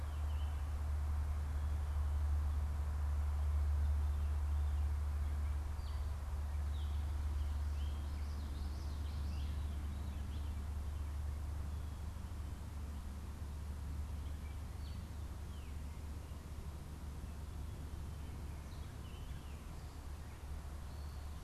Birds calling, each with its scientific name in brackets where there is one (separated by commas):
Gray Catbird (Dumetella carolinensis)